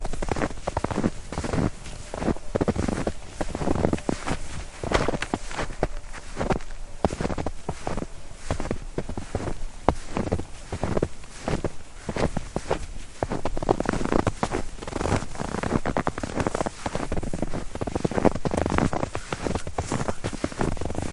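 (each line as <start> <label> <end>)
0.0 Muffled regular footsteps outside. 21.1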